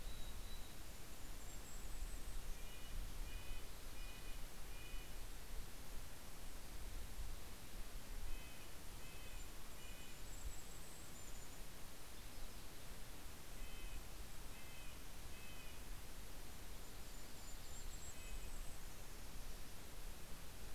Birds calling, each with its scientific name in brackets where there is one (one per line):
Yellow-rumped Warbler (Setophaga coronata)
Golden-crowned Kinglet (Regulus satrapa)
Red-breasted Nuthatch (Sitta canadensis)